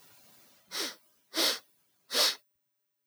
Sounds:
Sniff